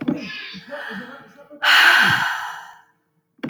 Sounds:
Sigh